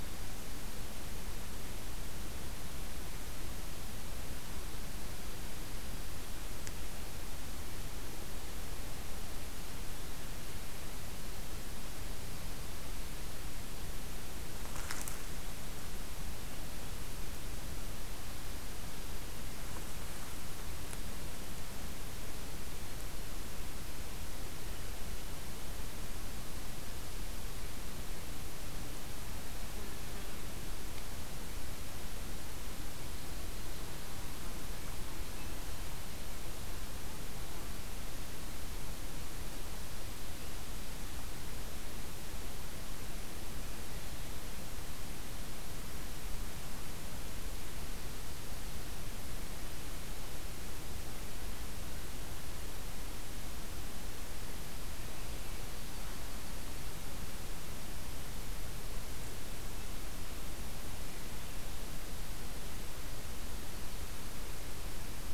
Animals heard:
forest ambience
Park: Hubbard Brook Experimental Forest